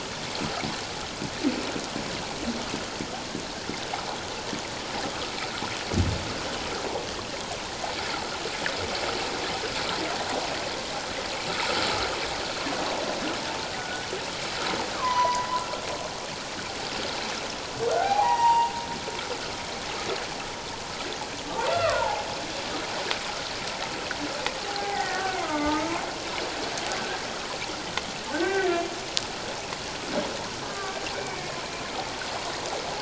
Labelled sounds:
13.7	14.0	humpback whale, 1.4 to 1.5 kHz
15.0	15.5	humpback whale, 0.91 to 6.1 kHz
17.9	18.7	humpback whale, 0.78 to 2.9 kHz
21.7	22.3	humpback whale, 0.78 to 1.4 kHz
24.7	25.9	humpback whale, 0.78 to 2.1 kHz
28.3	28.8	humpback whale, 1.4 to 2.0 kHz
30.6	31.5	humpback whale, 1.1 to 2.4 kHz

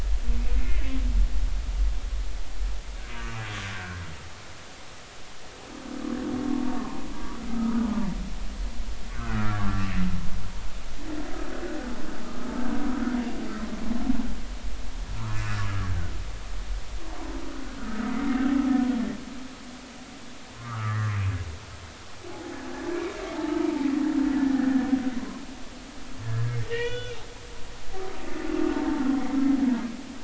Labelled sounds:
0.6	0.9	humpback whale, 1.9 to 2.3 kHz
3.2	3.4	humpback whale, 1.1 to 2.9 kHz
3.7	4.0	humpback whale, 1.4 to 1.7 kHz
7.5	7.8	humpback whale, 1.2 to 1.3 kHz
9.1	9.9	humpback whale, 0.99 to 1.6 kHz
12.2	12.5	humpback whale, 1.2 to 1.3 kHz
17.8	18.0	humpback whale, 1.2 to 1.5 kHz
20.5	21.3	humpback whale, 1.0 to 2.6 kHz
23.6	25.0	humpback whale, 0.83 to 1.9 kHz
26.2	27.2	humpback whale, 1.4 to 3.5 kHz
28.7	29.2	humpback whale, 0.86 to 1.1 kHz

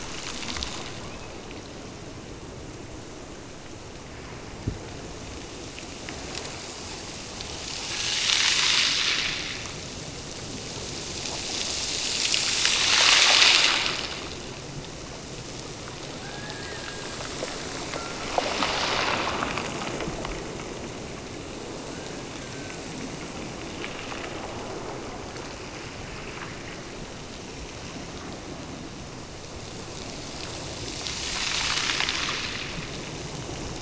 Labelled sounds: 16.2	17.2	killer whale, Bigg's (transient), Gulf of Alaska transient, 0.66 to 2.2 kHz
21.7	22.9	killer whale, Bigg's (transient), Gulf of Alaska transient, 1.2 to 1.8 kHz

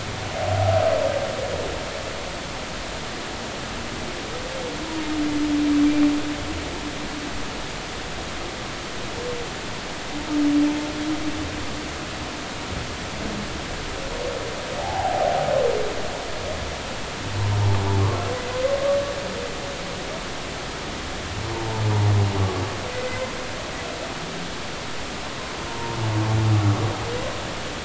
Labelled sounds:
14.8	15.4	humpback whale, 0.80 to 0.96 kHz
21.5	21.8	humpback whale, 0.80 to 1.0 kHz
25.7	26.0	humpback whale, 0.90 to 1.1 kHz

